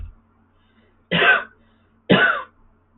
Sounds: Cough